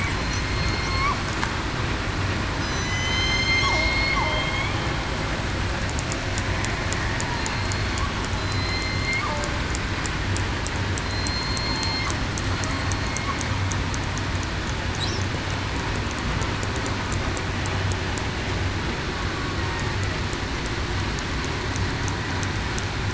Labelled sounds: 0.0	1.1	killer whale, southern resident, 4.1 to 4.4 kHz
2.6	3.6	killer whale, southern resident, 4.0 to 8.0 kHz
4.2	4.7	killer whale, southern resident, 3.1 to 3.5 kHz
7.5	8.0	killer whale, southern resident, 4.2 to 4.4 kHz
8.3	9.2	killer whale, southern resident, 4.0 to 4.4 kHz
11.0	11.6	killer whale, southern resident, 4.1 to 4.3 kHz

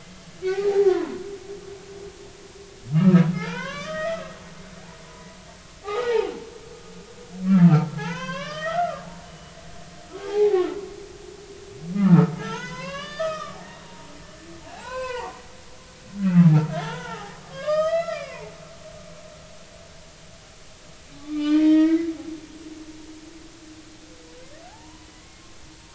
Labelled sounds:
0.4	1.2	humpback whale, 0.80 to 2.0 kHz
2.9	4.3	humpback whale, 0.80 to 3.6 kHz
5.0	6.5	humpback whale, 0.80 to 2.0 kHz
7.5	9.5	humpback whale, 0.80 to 5.8 kHz
10.2	10.8	humpback whale, 0.80 to 2.0 kHz
11.9	14.1	humpback whale, 0.86 to 6.6 kHz
14.7	15.3	humpback whale, 0.80 to 7.3 kHz
16.2	18.5	humpback whale, 0.80 to 6.4 kHz
21.2	22.1	humpback whale, 0.83 to 4.3 kHz
24.7	25.1	humpback whale, 0.80 to 1.1 kHz

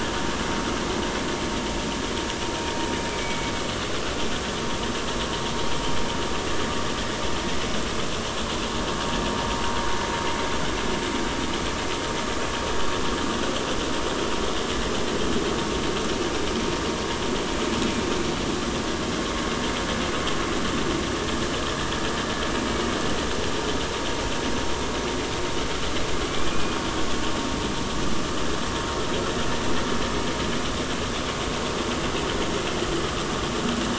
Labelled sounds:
3.2	3.5	killer whale, 2.2 to 2.3 kHz
26.3	26.8	killer whale, 2.2 to 2.5 kHz

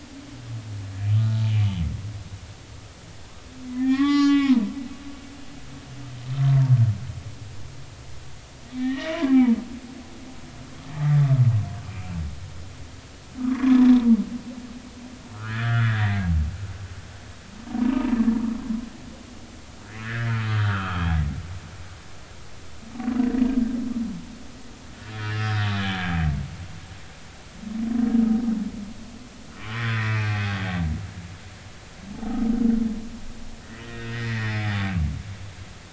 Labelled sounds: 3.7	4.7	humpback whale, 0.80 to 7.2 kHz
8.8	9.6	humpback whale, 0.86 to 2.4 kHz
13.4	13.9	humpback whale, 0.93 to 1.8 kHz
15.3	16.3	humpback whale, 1.2 to 3.6 kHz
17.8	18.2	humpback whale, 0.90 to 3.0 kHz
20.0	21.2	humpback whale, 1.1 to 3.4 kHz
25.0	26.1	humpback whale, 1.6 to 5.2 kHz
29.7	30.4	humpback whale, 2.3 to 3.5 kHz
32.1	32.5	humpback whale, 0.80 to 0.90 kHz
33.8	34.7	humpback whale, 1.7 to 3.8 kHz

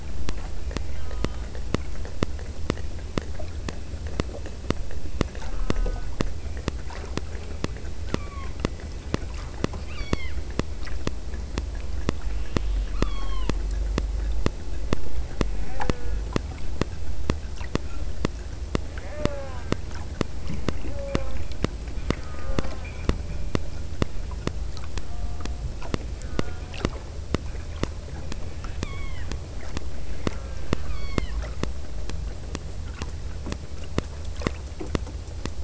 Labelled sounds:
1.0	1.7	killer whale, southern Alaska resident, 0.68 to 3.8 kHz
5.4	6.3	killer whale, southern Alaska resident, 0.57 to 3.0 kHz
8.2	8.7	killer whale, southern Alaska resident, 0.82 to 2.5 kHz
9.9	10.5	killer whale, southern Alaska resident, 0.94 to 5.9 kHz
12.2	13.6	killer whale, southern Alaska resident, 0.73 to 4.7 kHz
15.6	16.3	killer whale, southern Alaska resident, 0.43 to 2.7 kHz
19.1	19.8	killer whale, southern Alaska resident, 0.41 to 2.8 kHz
20.9	21.6	killer whale, southern Alaska resident, 0.39 to 2.6 kHz
22.3	23.0	killer whale, southern Alaska resident, 0.37 to 2.1 kHz
26.2	26.8	killer whale, southern Alaska resident, 0.62 to 2.1 kHz
28.5	29.4	killer whale, southern Alaska resident, 0.78 to 4.6 kHz
30.4	31.5	killer whale, southern Alaska resident, 0.80 to 5.7 kHz

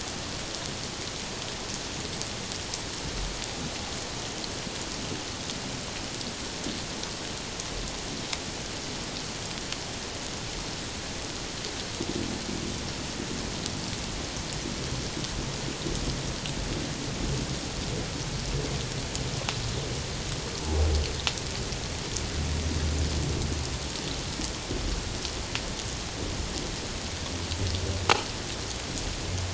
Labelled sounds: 20.6	20.9	humpback whale, 0.78 to 0.94 kHz

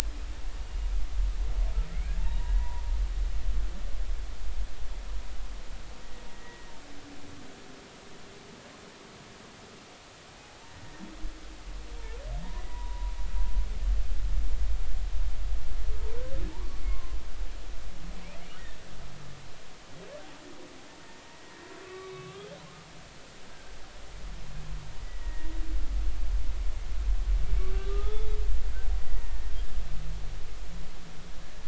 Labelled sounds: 2.2	2.9	humpback whale, 0.86 to 1.1 kHz
6.3	6.7	humpback whale, 1.8 to 2.0 kHz
10.3	10.6	humpback whale, 0.80 to 0.86 kHz
12.6	13.1	humpback whale, 0.90 to 2.0 kHz
16.5	17.2	humpback whale, 0.83 to 1.2 kHz
21.4	22.5	humpback whale, 1.1 to 3.8 kHz
26.0	26.5	humpback whale, 1.8 to 2.0 kHz
27.8	28.3	humpback whale, 1.1 to 3.6 kHz
29.1	29.5	humpback whale, 1.8 to 2.0 kHz

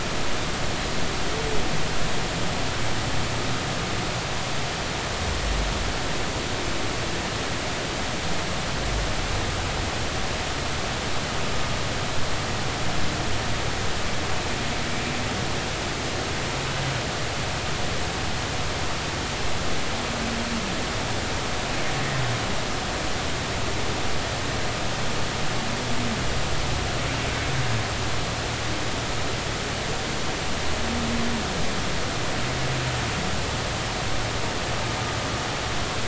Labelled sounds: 22.0	22.2	humpback whale, 1.8 to 1.9 kHz

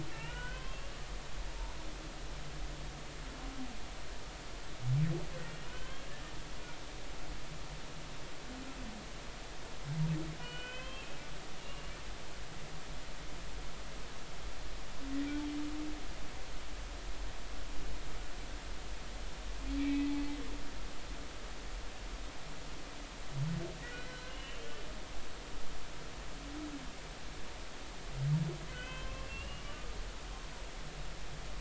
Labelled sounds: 0.1	1.0	humpback whale, 0.86 to 3.3 kHz
5.7	6.3	humpback whale, 1.4 to 3.3 kHz
10.4	11.9	humpback whale, 0.99 to 3.3 kHz
19.8	20.1	humpback whale, 1.9 to 2.7 kHz
23.8	24.6	humpback whale, 1.4 to 4.1 kHz
28.7	29.6	humpback whale, 0.99 to 3.2 kHz

